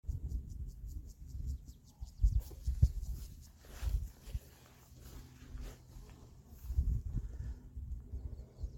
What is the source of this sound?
Gomphocerus sibiricus, an orthopteran